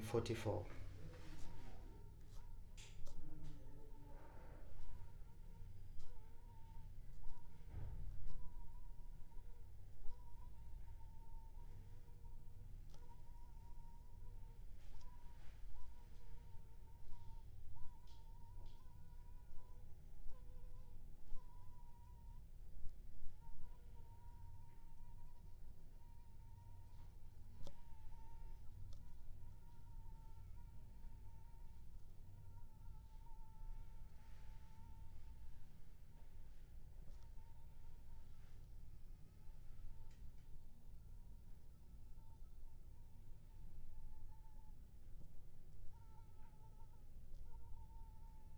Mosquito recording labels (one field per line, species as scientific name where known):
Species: Anopheles funestus s.s.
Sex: female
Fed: unfed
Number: one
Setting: cup